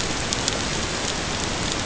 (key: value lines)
label: ambient
recorder: HydroMoth